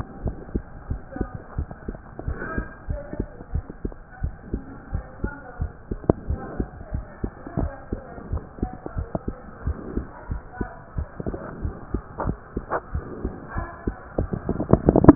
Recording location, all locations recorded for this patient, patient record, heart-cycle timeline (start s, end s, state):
mitral valve (MV)
aortic valve (AV)+pulmonary valve (PV)+tricuspid valve (TV)+mitral valve (MV)
#Age: Child
#Sex: Male
#Height: 123.0 cm
#Weight: 25.6 kg
#Pregnancy status: False
#Murmur: Absent
#Murmur locations: nan
#Most audible location: nan
#Systolic murmur timing: nan
#Systolic murmur shape: nan
#Systolic murmur grading: nan
#Systolic murmur pitch: nan
#Systolic murmur quality: nan
#Diastolic murmur timing: nan
#Diastolic murmur shape: nan
#Diastolic murmur grading: nan
#Diastolic murmur pitch: nan
#Diastolic murmur quality: nan
#Outcome: Normal
#Campaign: 2015 screening campaign
0.06	0.22	diastole
0.22	0.36	S1
0.36	0.52	systole
0.52	0.62	S2
0.62	0.88	diastole
0.88	1.02	S1
1.02	1.16	systole
1.16	1.32	S2
1.32	1.54	diastole
1.54	1.68	S1
1.68	1.86	systole
1.86	1.98	S2
1.98	2.24	diastole
2.24	2.38	S1
2.38	2.54	systole
2.54	2.66	S2
2.66	2.85	diastole
2.85	3.02	S1
3.02	3.16	systole
3.16	3.30	S2
3.30	3.50	diastole
3.50	3.66	S1
3.66	3.80	systole
3.80	3.94	S2
3.94	4.19	diastole
4.19	4.34	S1
4.34	4.49	systole
4.49	4.64	S2
4.64	4.89	diastole
4.89	5.04	S1
5.04	5.19	systole
5.19	5.32	S2
5.32	5.57	diastole
5.57	5.72	S1
5.72	5.87	systole
5.87	6.02	S2
6.02	6.26	diastole
6.26	6.40	S1
6.40	6.55	systole
6.55	6.68	S2
6.68	6.89	diastole
6.89	7.06	S1
7.06	7.21	systole
7.21	7.32	S2
7.32	7.58	diastole
7.58	7.72	S1
7.72	7.89	systole
7.89	8.02	S2
8.02	8.30	diastole
8.30	8.44	S1
8.44	8.60	systole
8.60	8.72	S2
8.72	8.94	diastole
8.94	9.08	S1
9.08	9.25	systole
9.25	9.36	S2
9.36	9.62	diastole
9.62	9.78	S1
9.78	9.93	systole
9.93	10.06	S2
10.06	10.27	diastole
10.27	10.42	S1
10.42	10.57	systole
10.57	10.70	S2
10.70	10.93	diastole
10.93	11.08	S1
11.08	11.23	systole
11.23	11.38	S2
11.38	11.62	diastole
11.62	11.74	S1
11.74	11.92	systole
11.92	12.04	S2
12.04	12.24	diastole
12.24	12.38	S1
12.38	12.54	systole
12.54	12.66	S2
12.66	12.91	diastole
12.91	13.06	S1
13.06	13.22	systole
13.22	13.34	S2
13.34	13.56	diastole